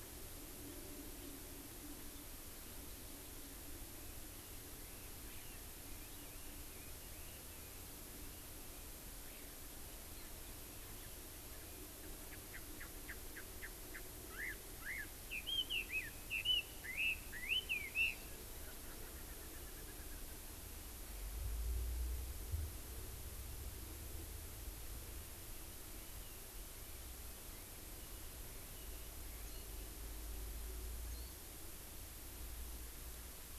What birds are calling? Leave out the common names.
Garrulax canorus, Alauda arvensis, Pternistis erckelii, Zosterops japonicus